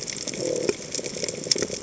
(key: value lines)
label: biophony
recorder: HydroMoth